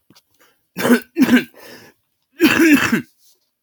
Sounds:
Cough